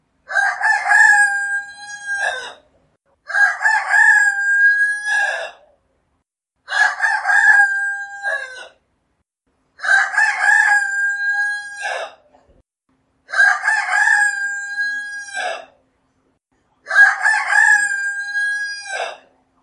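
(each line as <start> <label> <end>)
0.2 A rooster crows. 5.7
6.6 A rooster crows. 8.8
9.8 A rooster crows. 12.2
13.0 A rooster crows. 15.7
16.7 A rooster crows. 19.2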